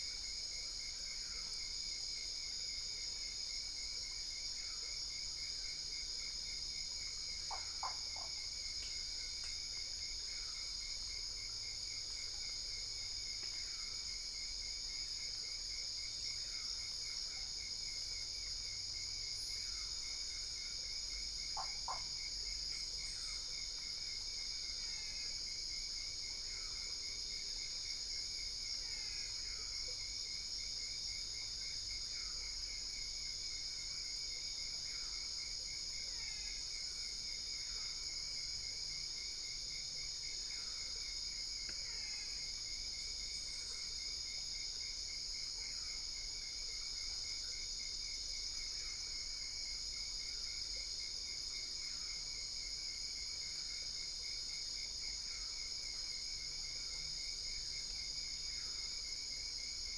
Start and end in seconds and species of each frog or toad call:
7.4	8.5	Usina tree frog
14.8	15.5	brown-spotted dwarf frog
21.5	22.1	Usina tree frog
22.4	22.9	brown-spotted dwarf frog
24.7	25.5	brown-spotted dwarf frog
28.7	29.6	brown-spotted dwarf frog
35.9	36.8	brown-spotted dwarf frog
41.8	42.5	brown-spotted dwarf frog
2:30am

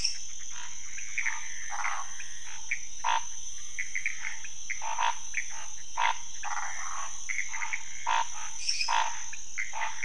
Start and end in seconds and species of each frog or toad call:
0.0	10.0	Pithecopus azureus
0.4	10.0	Scinax fuscovarius
1.6	2.0	waxy monkey tree frog
6.4	7.2	waxy monkey tree frog
8.5	9.1	lesser tree frog
9.3	9.4	pointedbelly frog
2:30am

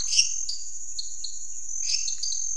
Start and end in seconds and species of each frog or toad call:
0.0	2.5	dwarf tree frog
1.7	2.2	lesser tree frog
8:00pm

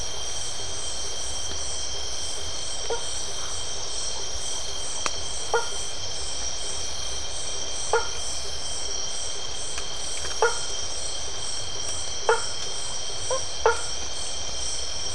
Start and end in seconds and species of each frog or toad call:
2.7	3.3	blacksmith tree frog
5.5	5.9	blacksmith tree frog
7.9	8.2	blacksmith tree frog
10.4	10.8	blacksmith tree frog
12.2	13.9	blacksmith tree frog
9:45pm

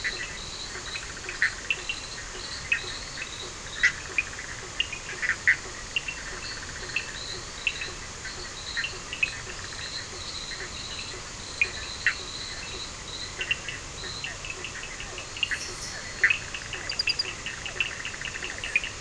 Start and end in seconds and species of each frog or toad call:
0.0	1.3	two-colored oval frog
0.0	4.4	fine-lined tree frog
0.0	5.9	Bischoff's tree frog
0.0	19.0	Physalaemus cuvieri
0.0	19.0	Cochran's lime tree frog
5.5	14.4	fine-lined tree frog
13.4	19.0	Bischoff's tree frog
15.3	16.6	two-colored oval frog
10:30pm

